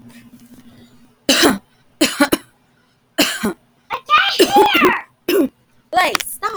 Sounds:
Cough